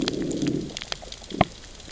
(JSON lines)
{"label": "biophony, growl", "recorder": "SoundTrap 600 or HydroMoth"}